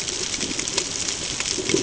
{"label": "ambient", "recorder": "HydroMoth"}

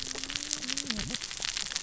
{"label": "biophony, cascading saw", "recorder": "SoundTrap 600 or HydroMoth"}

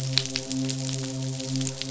{"label": "biophony, midshipman", "recorder": "SoundTrap 500"}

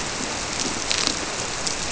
{"label": "biophony", "recorder": "SoundTrap 300"}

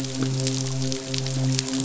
{"label": "biophony, midshipman", "recorder": "SoundTrap 500"}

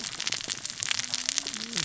{"label": "biophony, cascading saw", "recorder": "SoundTrap 600 or HydroMoth"}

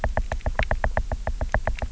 {"label": "biophony, knock", "recorder": "SoundTrap 300"}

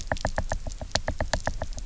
{"label": "biophony, knock", "recorder": "SoundTrap 300"}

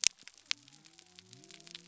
{"label": "biophony", "recorder": "SoundTrap 300"}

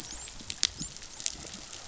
{"label": "biophony, dolphin", "recorder": "SoundTrap 500"}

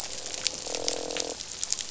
{"label": "biophony, croak", "recorder": "SoundTrap 500"}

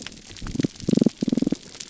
{"label": "biophony, pulse", "recorder": "SoundTrap 300"}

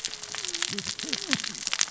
{"label": "biophony, cascading saw", "recorder": "SoundTrap 600 or HydroMoth"}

